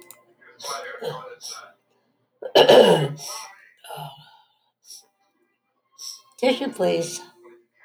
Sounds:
Sniff